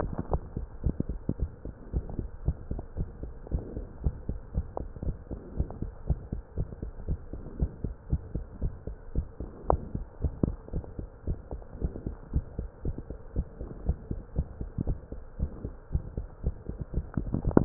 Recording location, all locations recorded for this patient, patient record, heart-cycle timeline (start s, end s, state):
mitral valve (MV)
aortic valve (AV)+pulmonary valve (PV)+tricuspid valve (TV)+mitral valve (MV)
#Age: Child
#Sex: Female
#Height: 118.0 cm
#Weight: 21.1 kg
#Pregnancy status: False
#Murmur: Present
#Murmur locations: aortic valve (AV)+mitral valve (MV)+pulmonary valve (PV)+tricuspid valve (TV)
#Most audible location: pulmonary valve (PV)
#Systolic murmur timing: Early-systolic
#Systolic murmur shape: Plateau
#Systolic murmur grading: II/VI
#Systolic murmur pitch: Medium
#Systolic murmur quality: Harsh
#Diastolic murmur timing: nan
#Diastolic murmur shape: nan
#Diastolic murmur grading: nan
#Diastolic murmur pitch: nan
#Diastolic murmur quality: nan
#Outcome: Abnormal
#Campaign: 2015 screening campaign
0.00	1.74	unannotated
1.74	1.92	diastole
1.92	2.06	S1
2.06	2.18	systole
2.18	2.30	S2
2.30	2.44	diastole
2.44	2.56	S1
2.56	2.70	systole
2.70	2.84	S2
2.84	2.98	diastole
2.98	3.10	S1
3.10	3.22	systole
3.22	3.34	S2
3.34	3.52	diastole
3.52	3.66	S1
3.66	3.78	systole
3.78	3.86	S2
3.86	4.02	diastole
4.02	4.13	S1
4.13	4.26	systole
4.26	4.34	S2
4.34	4.54	diastole
4.54	4.66	S1
4.66	4.80	systole
4.80	4.90	S2
4.90	5.06	diastole
5.06	5.18	S1
5.18	5.28	systole
5.28	5.38	S2
5.38	5.54	diastole
5.54	5.68	S1
5.68	5.80	systole
5.80	5.92	S2
5.92	6.08	diastole
6.08	6.22	S1
6.22	6.32	systole
6.32	6.42	S2
6.42	6.58	diastole
6.58	6.68	S1
6.68	6.82	systole
6.82	6.92	S2
6.92	7.06	diastole
7.06	7.20	S1
7.20	7.32	systole
7.32	7.42	S2
7.42	7.56	diastole
7.56	7.70	S1
7.70	7.84	systole
7.84	7.96	S2
7.96	8.10	diastole
8.10	8.22	S1
8.22	8.34	systole
8.34	8.46	S2
8.46	8.62	diastole
8.62	8.74	S1
8.74	8.86	systole
8.86	8.96	S2
8.96	9.14	diastole
9.14	9.28	S1
9.28	9.40	systole
9.40	9.50	S2
9.50	9.68	diastole
9.68	9.82	S1
9.82	9.94	systole
9.94	10.06	S2
10.06	10.22	diastole
10.22	10.34	S1
10.34	10.44	systole
10.44	10.58	S2
10.58	10.74	diastole
10.74	10.84	S1
10.84	10.98	systole
10.98	11.10	S2
11.10	11.28	diastole
11.28	11.40	S1
11.40	11.52	systole
11.52	11.62	S2
11.62	11.82	diastole
11.82	11.94	S1
11.94	12.06	systole
12.06	12.16	S2
12.16	12.34	diastole
12.34	12.46	S1
12.46	12.58	systole
12.58	12.70	S2
12.70	12.84	diastole
12.84	12.96	S1
12.96	13.10	systole
13.10	13.20	S2
13.20	13.36	diastole
13.36	13.48	S1
13.48	13.60	systole
13.60	13.70	S2
13.70	13.84	diastole
13.84	14.00	S1
14.00	14.10	systole
14.10	14.18	S2
14.18	14.34	diastole
14.34	14.46	S1
14.46	14.60	systole
14.60	14.70	S2
14.70	14.84	diastole
14.84	15.00	S1
15.00	15.10	systole
15.10	15.20	S2
15.20	15.38	diastole
15.38	15.52	S1
15.52	15.64	systole
15.64	15.74	S2
15.74	15.90	diastole
15.90	16.04	S1
16.04	16.16	systole
16.16	16.26	S2
16.26	16.42	diastole
16.42	16.54	S1
16.54	16.68	systole
16.68	16.78	S2
16.78	16.94	diastole
16.94	17.65	unannotated